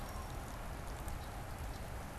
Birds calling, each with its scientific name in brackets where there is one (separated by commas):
Red-winged Blackbird (Agelaius phoeniceus), Canada Goose (Branta canadensis)